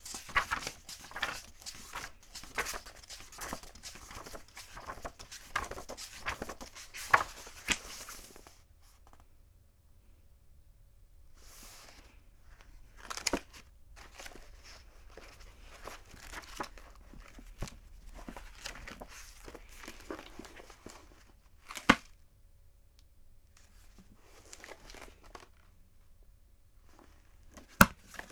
Has more than one page been flipped?
yes